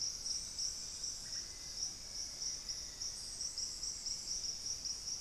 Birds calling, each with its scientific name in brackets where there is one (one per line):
Black-faced Antthrush (Formicarius analis)
unidentified bird